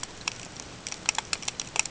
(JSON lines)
{"label": "ambient", "recorder": "HydroMoth"}